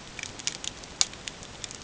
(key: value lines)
label: ambient
recorder: HydroMoth